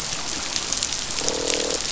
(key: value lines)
label: biophony, croak
recorder: SoundTrap 500